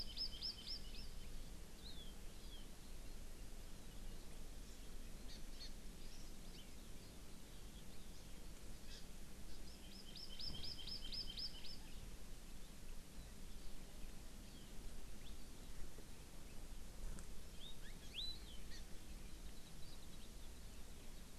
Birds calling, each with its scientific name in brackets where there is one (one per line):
Warbling White-eye (Zosterops japonicus)
Hawaii Amakihi (Chlorodrepanis virens)